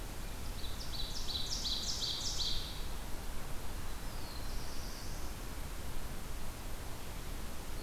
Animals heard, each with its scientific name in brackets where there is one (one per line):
Ovenbird (Seiurus aurocapilla)
Black-throated Blue Warbler (Setophaga caerulescens)